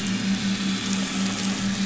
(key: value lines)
label: anthrophony, boat engine
recorder: SoundTrap 500